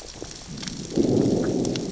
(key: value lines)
label: biophony, growl
recorder: SoundTrap 600 or HydroMoth